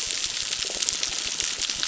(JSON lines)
{"label": "biophony, crackle", "recorder": "SoundTrap 600"}